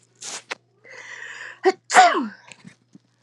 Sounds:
Sneeze